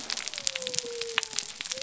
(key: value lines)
label: biophony
recorder: SoundTrap 300